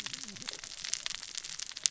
{"label": "biophony, cascading saw", "recorder": "SoundTrap 600 or HydroMoth"}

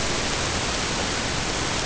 {"label": "ambient", "recorder": "HydroMoth"}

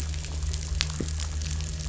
{"label": "anthrophony, boat engine", "recorder": "SoundTrap 500"}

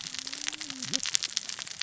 {"label": "biophony, cascading saw", "recorder": "SoundTrap 600 or HydroMoth"}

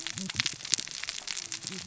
{"label": "biophony, cascading saw", "recorder": "SoundTrap 600 or HydroMoth"}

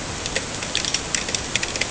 {"label": "ambient", "recorder": "HydroMoth"}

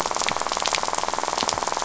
{"label": "biophony, rattle", "recorder": "SoundTrap 500"}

